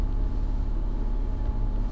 {"label": "anthrophony, boat engine", "recorder": "SoundTrap 300"}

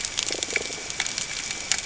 {"label": "ambient", "recorder": "HydroMoth"}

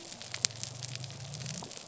{"label": "biophony", "recorder": "SoundTrap 300"}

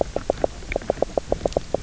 {"label": "biophony, knock croak", "recorder": "SoundTrap 300"}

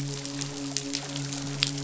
{"label": "biophony, midshipman", "recorder": "SoundTrap 500"}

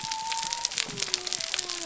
{"label": "biophony", "recorder": "SoundTrap 300"}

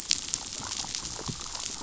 {"label": "biophony", "recorder": "SoundTrap 500"}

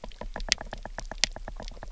{"label": "biophony, knock", "recorder": "SoundTrap 300"}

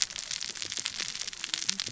{"label": "biophony, cascading saw", "recorder": "SoundTrap 600 or HydroMoth"}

